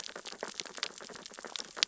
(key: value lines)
label: biophony, sea urchins (Echinidae)
recorder: SoundTrap 600 or HydroMoth